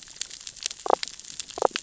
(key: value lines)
label: biophony, damselfish
recorder: SoundTrap 600 or HydroMoth